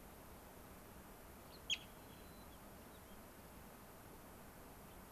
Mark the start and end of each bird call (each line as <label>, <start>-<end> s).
Gray-crowned Rosy-Finch (Leucosticte tephrocotis), 1.4-1.6 s
White-crowned Sparrow (Zonotrichia leucophrys), 2.1-3.2 s
Gray-crowned Rosy-Finch (Leucosticte tephrocotis), 4.8-5.0 s